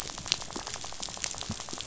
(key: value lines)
label: biophony, rattle
recorder: SoundTrap 500